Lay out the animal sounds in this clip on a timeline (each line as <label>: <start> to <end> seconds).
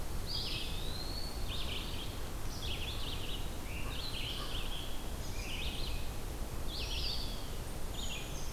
Eastern Wood-Pewee (Contopus virens): 0.0 to 1.6 seconds
Red-eyed Vireo (Vireo olivaceus): 0.2 to 8.5 seconds
Scarlet Tanager (Piranga olivacea): 3.5 to 6.1 seconds
American Crow (Corvus brachyrhynchos): 3.7 to 4.6 seconds
Eastern Wood-Pewee (Contopus virens): 6.6 to 7.7 seconds
Brown Creeper (Certhia americana): 7.7 to 8.5 seconds